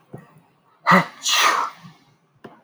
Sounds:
Sneeze